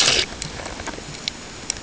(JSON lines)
{"label": "ambient", "recorder": "HydroMoth"}